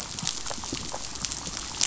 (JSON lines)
{"label": "biophony, chatter", "recorder": "SoundTrap 500"}